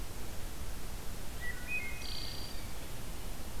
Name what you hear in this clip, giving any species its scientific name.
Hylocichla mustelina